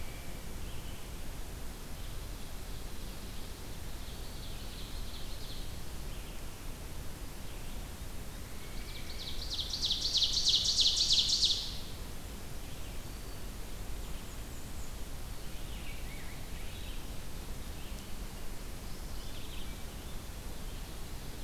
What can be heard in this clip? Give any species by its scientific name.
Seiurus aurocapilla, Mniotilta varia, Pheucticus ludovicianus, Geothlypis philadelphia